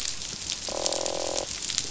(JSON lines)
{"label": "biophony, croak", "recorder": "SoundTrap 500"}